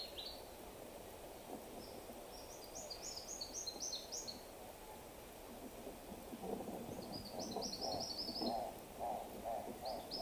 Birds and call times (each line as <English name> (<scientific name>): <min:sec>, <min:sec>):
Brown Woodland-Warbler (Phylloscopus umbrovirens): 0:08.0
Hartlaub's Turaco (Tauraco hartlaubi): 0:09.0